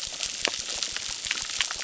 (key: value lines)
label: biophony, crackle
recorder: SoundTrap 600